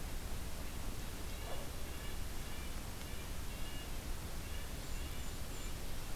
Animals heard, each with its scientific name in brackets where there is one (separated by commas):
Golden-crowned Kinglet (Regulus satrapa), Red-breasted Nuthatch (Sitta canadensis)